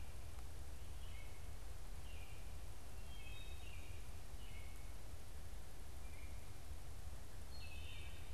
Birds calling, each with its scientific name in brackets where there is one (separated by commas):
Baltimore Oriole (Icterus galbula), Wood Thrush (Hylocichla mustelina)